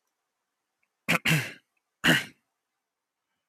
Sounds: Throat clearing